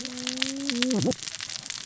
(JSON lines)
{"label": "biophony, cascading saw", "recorder": "SoundTrap 600 or HydroMoth"}